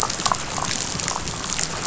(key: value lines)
label: biophony, rattle
recorder: SoundTrap 500